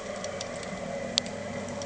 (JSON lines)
{"label": "anthrophony, boat engine", "recorder": "HydroMoth"}